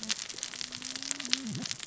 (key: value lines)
label: biophony, cascading saw
recorder: SoundTrap 600 or HydroMoth